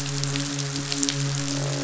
{"label": "biophony, midshipman", "recorder": "SoundTrap 500"}
{"label": "biophony, croak", "recorder": "SoundTrap 500"}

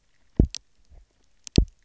{"label": "biophony, double pulse", "recorder": "SoundTrap 300"}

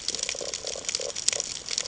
{"label": "ambient", "recorder": "HydroMoth"}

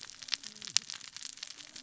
{"label": "biophony, cascading saw", "recorder": "SoundTrap 600 or HydroMoth"}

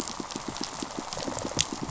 {"label": "biophony, rattle response", "recorder": "SoundTrap 500"}
{"label": "biophony, pulse", "recorder": "SoundTrap 500"}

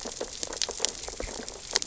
{"label": "biophony, sea urchins (Echinidae)", "recorder": "SoundTrap 600 or HydroMoth"}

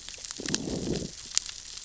{"label": "biophony, growl", "recorder": "SoundTrap 600 or HydroMoth"}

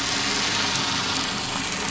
{"label": "anthrophony, boat engine", "recorder": "SoundTrap 500"}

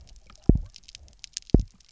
{"label": "biophony, double pulse", "recorder": "SoundTrap 300"}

